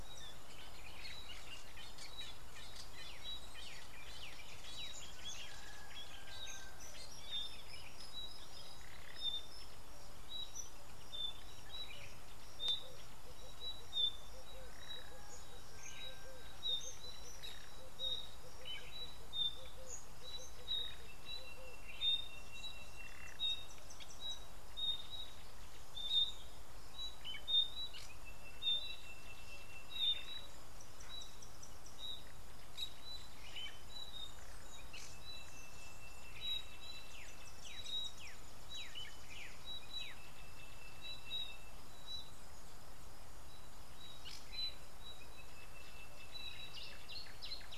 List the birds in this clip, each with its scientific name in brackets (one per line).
Yellow Bishop (Euplectes capensis)
Sulphur-breasted Bushshrike (Telophorus sulfureopectus)
Fork-tailed Drongo (Dicrurus adsimilis)
Red-eyed Dove (Streptopelia semitorquata)
Black-backed Puffback (Dryoscopus cubla)
Rufous Chatterer (Argya rubiginosa)